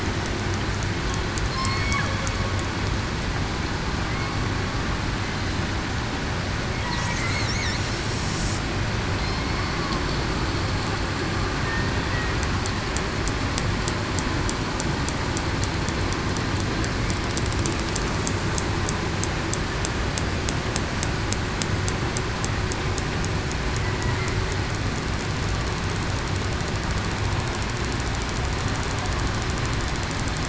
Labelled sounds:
1.5	1.9	killer whale, southern resident, 4.1 to 4.5 kHz

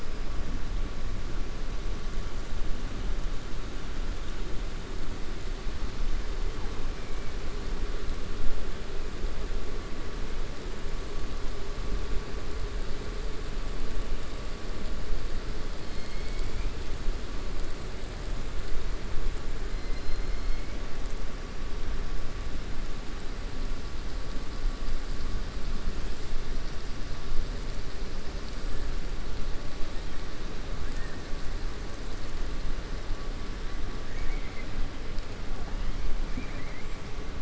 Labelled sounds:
15.8	16.7	killer whale, southern resident, 2.0 to 5.4 kHz
19.8	20.6	killer whale, southern resident, 4.1 to 5.3 kHz
34.0	34.7	killer whale, southern resident, 1.8 to 3.2 kHz

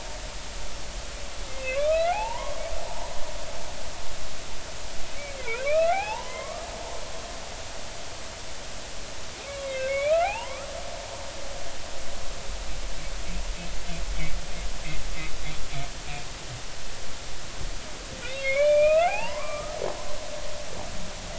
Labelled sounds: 1.5	2.6	humpback whale, 0.80 to 3.3 kHz
2.9	3.1	humpback whale, 0.83 to 1.0 kHz
5.4	6.7	humpback whale, 0.80 to 3.2 kHz
9.6	10.7	humpback whale, 0.80 to 3.9 kHz
18.2	19.8	humpback whale, 0.80 to 3.9 kHz

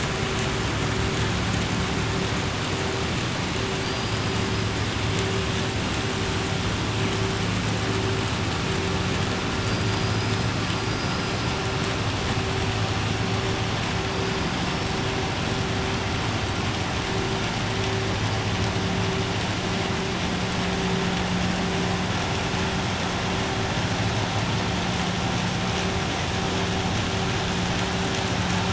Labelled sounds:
3.8	4.2	killer whale, southern resident, 4.6 to 5.0 kHz

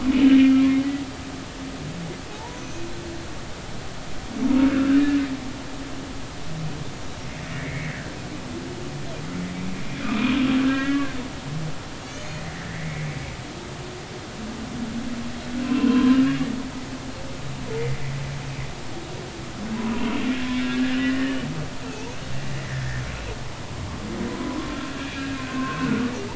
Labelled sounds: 0.1	0.5	humpback whale, 2.9 to 3.1 kHz
2.3	2.9	humpback whale, 0.80 to 6.6 kHz
4.7	5.2	humpback whale, 1.2 to 1.9 kHz
7.5	7.9	humpback whale, 1.7 to 2.3 kHz
10.0	11.2	humpback whale, 1.3 to 3.1 kHz
12.0	13.1	humpback whale, 1.7 to 4.4 kHz
15.6	16.4	humpback whale, 0.96 to 2.9 kHz
17.7	18.0	humpback whale, 1.9 to 2.1 kHz
19.9	21.5	humpback whale, 0.93 to 3.0 kHz
24.4	24.8	humpback whale, 0.93 to 1.2 kHz
25.4	26.1	humpback whale, 0.99 to 1.7 kHz

